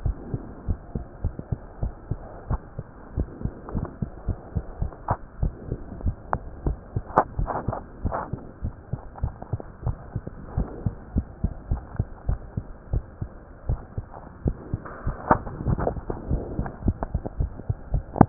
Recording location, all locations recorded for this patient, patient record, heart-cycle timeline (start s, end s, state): tricuspid valve (TV)
aortic valve (AV)+pulmonary valve (PV)+tricuspid valve (TV)+mitral valve (MV)
#Age: Child
#Sex: Female
#Height: 110.0 cm
#Weight: 18.9 kg
#Pregnancy status: False
#Murmur: Absent
#Murmur locations: nan
#Most audible location: nan
#Systolic murmur timing: nan
#Systolic murmur shape: nan
#Systolic murmur grading: nan
#Systolic murmur pitch: nan
#Systolic murmur quality: nan
#Diastolic murmur timing: nan
#Diastolic murmur shape: nan
#Diastolic murmur grading: nan
#Diastolic murmur pitch: nan
#Diastolic murmur quality: nan
#Outcome: Abnormal
#Campaign: 2015 screening campaign
0.00	0.16	S1
0.16	0.31	systole
0.31	0.42	S2
0.42	0.66	diastole
0.66	0.80	S1
0.80	0.94	systole
0.94	1.06	S2
1.06	1.24	diastole
1.24	1.36	S1
1.36	1.48	systole
1.48	1.60	S2
1.60	1.80	diastole
1.80	1.92	S1
1.92	2.08	systole
2.08	2.22	S2
2.22	2.46	diastole
2.46	2.64	S1
2.64	2.78	systole
2.78	2.88	S2
2.88	3.14	diastole
3.14	3.28	S1
3.28	3.44	systole
3.44	3.52	S2
3.52	3.72	diastole
3.72	3.84	S1
3.84	3.98	systole
3.98	4.08	S2
4.08	4.26	diastole
4.26	4.38	S1
4.38	4.54	systole
4.54	4.64	S2
4.64	4.82	diastole
4.82	4.92	S1
4.92	5.08	systole
5.08	5.18	S2
5.18	5.40	diastole
5.40	5.54	S1
5.54	5.70	systole
5.70	5.80	S2
5.80	6.02	diastole
6.02	6.16	S1
6.16	6.32	systole
6.32	6.42	S2
6.42	6.64	diastole
6.64	6.78	S1
6.78	6.94	systole
6.94	7.06	S2
7.06	7.36	diastole
7.36	7.50	S1
7.50	7.66	systole
7.66	7.76	S2
7.76	8.02	diastole
8.02	8.16	S1
8.16	8.31	systole
8.31	8.42	S2
8.42	8.62	diastole
8.62	8.74	S1
8.74	8.90	systole
8.90	9.00	S2
9.00	9.20	diastole
9.20	9.34	S1
9.34	9.50	systole
9.50	9.60	S2
9.60	9.84	diastole
9.84	9.98	S1
9.98	10.13	systole
10.13	10.23	S2
10.23	10.54	diastole
10.54	10.68	S1
10.68	10.84	systole
10.84	10.94	S2
10.94	11.14	diastole
11.14	11.26	S1
11.26	11.38	systole
11.38	11.50	S2
11.50	11.68	diastole
11.68	11.82	S1
11.82	11.98	systole
11.98	12.08	S2
12.08	12.30	diastole
12.30	12.44	S1
12.44	12.56	systole
12.56	12.66	S2
12.66	12.90	diastole
12.90	13.04	S1
13.04	13.20	systole
13.20	13.30	S2
13.30	13.66	diastole
13.66	13.80	S1
13.80	13.96	systole
13.96	14.10	S2
14.10	14.40	diastole
14.40	14.58	S1
14.58	14.71	systole
14.71	14.82	S2
14.82	15.04	diastole
15.04	15.16	S1